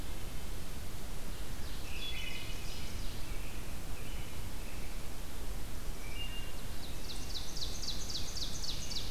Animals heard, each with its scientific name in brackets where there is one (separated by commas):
Ovenbird (Seiurus aurocapilla), Red-breasted Nuthatch (Sitta canadensis), Wood Thrush (Hylocichla mustelina), American Robin (Turdus migratorius)